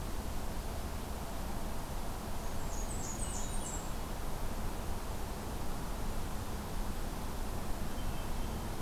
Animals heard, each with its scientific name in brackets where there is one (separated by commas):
Blackburnian Warbler (Setophaga fusca), Hermit Thrush (Catharus guttatus)